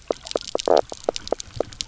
{"label": "biophony, knock croak", "recorder": "SoundTrap 300"}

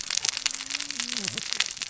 {"label": "biophony, cascading saw", "recorder": "SoundTrap 600 or HydroMoth"}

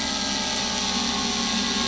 {"label": "anthrophony, boat engine", "recorder": "SoundTrap 500"}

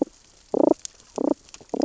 {"label": "biophony, damselfish", "recorder": "SoundTrap 600 or HydroMoth"}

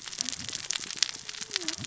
{"label": "biophony, cascading saw", "recorder": "SoundTrap 600 or HydroMoth"}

